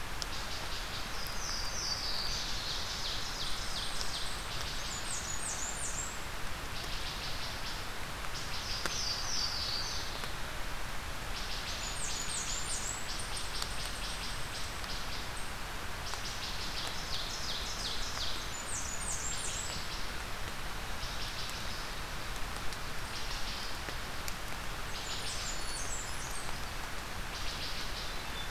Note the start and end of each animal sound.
[0.00, 28.51] Wood Thrush (Hylocichla mustelina)
[1.08, 2.30] Louisiana Waterthrush (Parkesia motacilla)
[2.63, 4.39] Ovenbird (Seiurus aurocapilla)
[4.68, 6.21] Blackburnian Warbler (Setophaga fusca)
[8.39, 10.38] Louisiana Waterthrush (Parkesia motacilla)
[11.47, 13.12] Blackburnian Warbler (Setophaga fusca)
[16.44, 18.48] Ovenbird (Seiurus aurocapilla)
[18.39, 19.72] Blackburnian Warbler (Setophaga fusca)
[24.71, 26.54] Blackburnian Warbler (Setophaga fusca)
[25.32, 26.88] Hermit Thrush (Catharus guttatus)

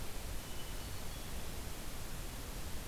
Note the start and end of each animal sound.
[0.12, 1.39] Hermit Thrush (Catharus guttatus)

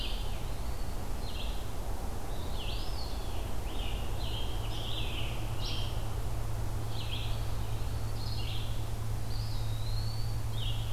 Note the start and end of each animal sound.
[0.00, 10.92] Red-eyed Vireo (Vireo olivaceus)
[2.50, 3.43] Eastern Wood-Pewee (Contopus virens)
[3.07, 5.95] Scarlet Tanager (Piranga olivacea)
[9.23, 10.52] Eastern Wood-Pewee (Contopus virens)

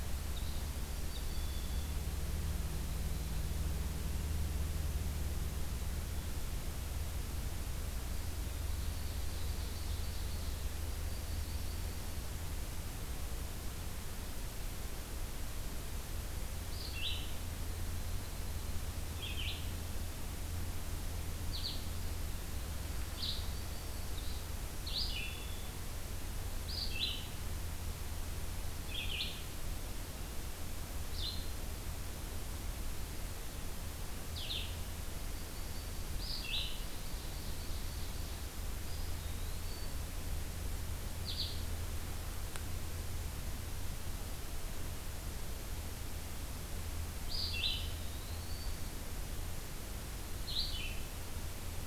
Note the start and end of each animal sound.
[0.19, 2.00] Red-winged Blackbird (Agelaius phoeniceus)
[0.75, 2.02] Yellow-rumped Warbler (Setophaga coronata)
[8.29, 10.69] Ovenbird (Seiurus aurocapilla)
[10.85, 12.23] Yellow-rumped Warbler (Setophaga coronata)
[16.51, 36.85] Red-eyed Vireo (Vireo olivaceus)
[17.60, 18.97] Yellow-rumped Warbler (Setophaga coronata)
[22.73, 24.13] Yellow-rumped Warbler (Setophaga coronata)
[24.07, 24.52] Black-capped Chickadee (Poecile atricapillus)
[35.20, 36.70] Yellow-rumped Warbler (Setophaga coronata)
[36.82, 38.48] Ovenbird (Seiurus aurocapilla)
[38.69, 40.32] Eastern Wood-Pewee (Contopus virens)
[41.02, 41.70] Red-eyed Vireo (Vireo olivaceus)
[47.24, 51.10] Red-eyed Vireo (Vireo olivaceus)
[47.59, 48.98] Eastern Wood-Pewee (Contopus virens)

